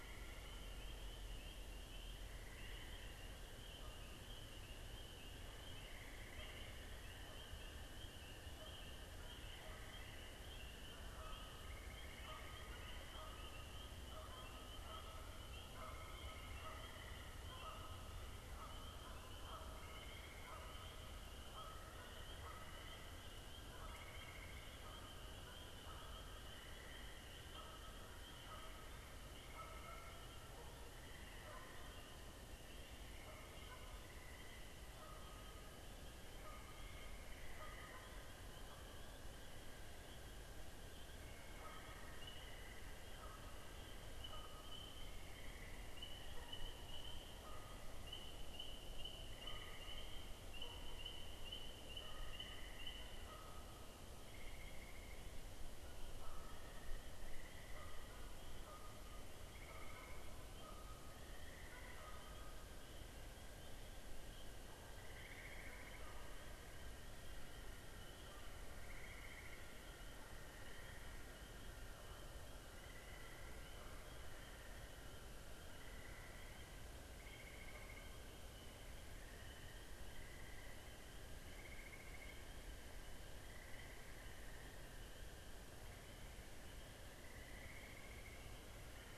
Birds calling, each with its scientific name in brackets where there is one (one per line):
Canada Goose (Branta canadensis)